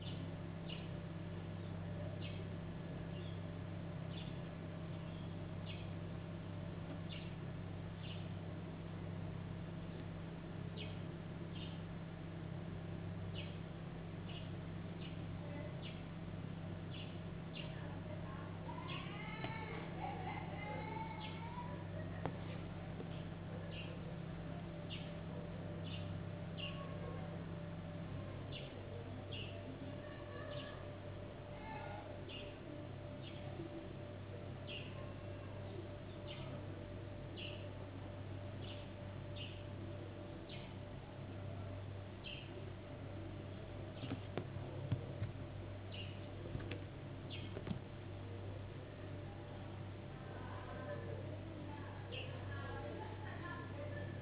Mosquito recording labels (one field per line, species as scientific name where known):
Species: no mosquito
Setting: insect culture